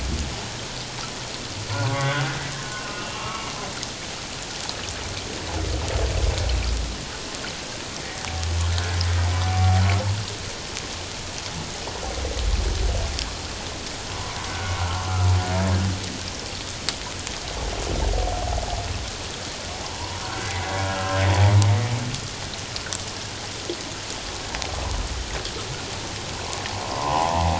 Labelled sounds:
1.8	2.3	humpback whale, 1.0 to 1.6 kHz
2.5	3.5	humpback whale, 1.0 to 2.9 kHz
19.9	21.2	humpback whale, 0.91 to 2.1 kHz

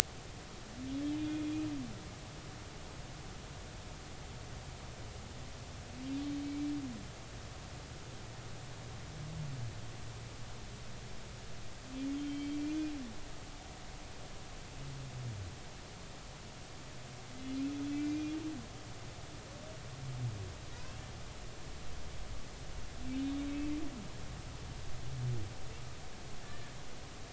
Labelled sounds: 1.2	1.4	humpback whale, 2.4 to 2.5 kHz
6.4	6.7	humpback whale, 2.2 to 2.4 kHz
12.2	12.9	humpback whale, 2.2 to 3.4 kHz
17.9	18.3	humpback whale, 2.0 to 2.5 kHz
20.7	21.0	humpback whale, 1.4 to 2.8 kHz
23.1	23.3	humpback whale, 2.3 to 2.5 kHz
26.4	26.7	humpback whale, 1.6 to 1.9 kHz

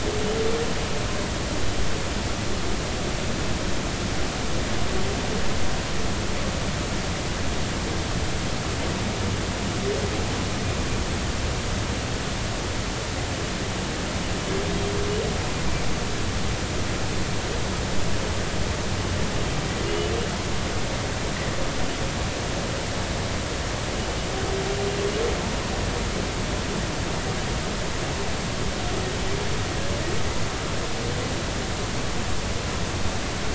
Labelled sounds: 19.9	20.1	humpback whale, 2.8 to 3.0 kHz

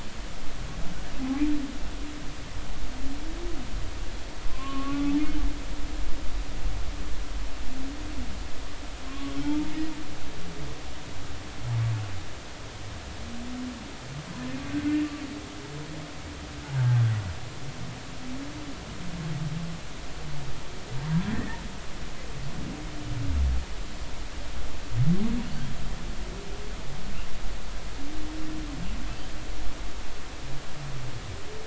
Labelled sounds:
4.5	5.2	humpback whale, 0.99 to 1.5 kHz
9.1	9.3	humpback whale, 1.0 to 1.2 kHz
16.8	17.0	humpback whale, 1.4 to 1.7 kHz
21.3	21.6	humpback whale, 1.7 to 2.0 kHz

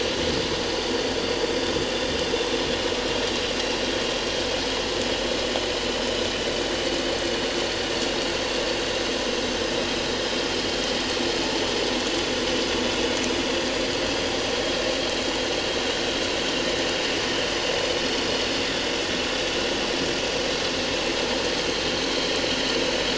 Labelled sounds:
18.0	18.2	vessel noise, 5.3 to 5.6 kHz

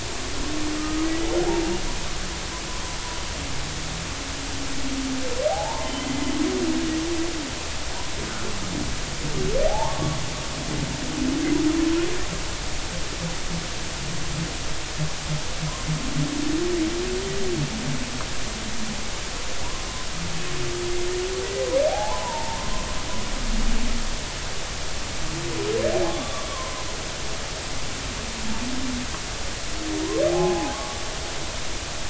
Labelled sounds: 0.8	1.1	humpback whale, 1.2 to 1.3 kHz
5.5	6.1	humpback whale, 0.80 to 3.2 kHz
9.7	10.2	humpback whale, 0.80 to 1.2 kHz
21.9	22.7	humpback whale, 0.80 to 1.1 kHz
26.1	26.4	humpback whale, 3.4 to 3.6 kHz
30.3	31.0	humpback whale, 0.80 to 1.2 kHz

